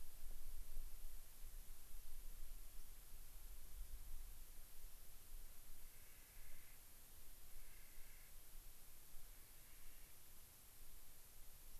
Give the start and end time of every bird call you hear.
5.8s-6.8s: Clark's Nutcracker (Nucifraga columbiana)
7.4s-8.4s: Clark's Nutcracker (Nucifraga columbiana)
9.1s-10.2s: Clark's Nutcracker (Nucifraga columbiana)

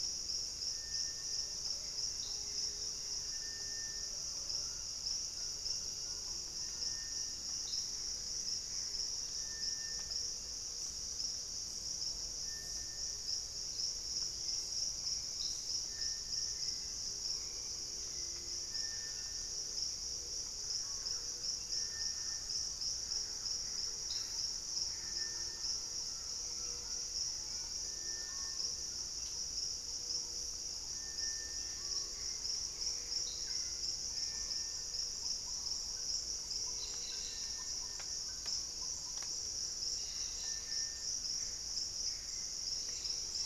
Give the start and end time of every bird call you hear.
0.8s-3.5s: Buff-throated Woodcreeper (Xiphorhynchus guttatus)
1.0s-19.7s: Purple-throated Fruitcrow (Querula purpurata)
1.4s-4.9s: Plumbeous Pigeon (Patagioenas plumbea)
4.3s-7.1s: Collared Trogon (Trogon collaris)
7.4s-9.3s: Gray Antbird (Cercomacra cinerascens)
13.6s-20.1s: Hauxwell's Thrush (Turdus hauxwelli)
18.3s-22.9s: Screaming Piha (Lipaugus vociferans)
20.2s-39.5s: Thrush-like Wren (Campylorhynchus turdinus)
23.0s-25.5s: Gray Antbird (Cercomacra cinerascens)
25.3s-27.3s: Collared Trogon (Trogon collaris)
26.8s-28.7s: unidentified bird
28.0s-28.8s: Screaming Piha (Lipaugus vociferans)
31.1s-34.9s: Hauxwell's Thrush (Turdus hauxwelli)
32.4s-34.8s: Gray Antbird (Cercomacra cinerascens)
36.5s-43.5s: Cobalt-winged Parakeet (Brotogeris cyanoptera)
39.9s-43.5s: Gray Antbird (Cercomacra cinerascens)

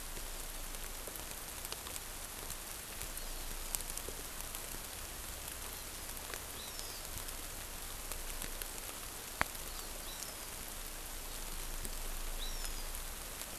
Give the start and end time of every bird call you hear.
3.1s-3.8s: Hawaiian Hawk (Buteo solitarius)
6.5s-7.0s: Hawaiian Hawk (Buteo solitarius)
10.0s-10.5s: Hawaiian Hawk (Buteo solitarius)
12.4s-12.8s: Hawaiian Hawk (Buteo solitarius)

